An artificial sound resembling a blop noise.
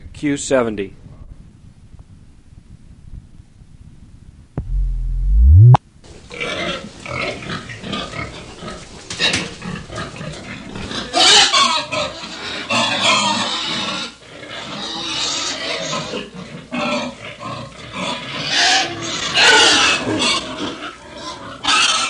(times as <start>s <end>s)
4.6s 5.8s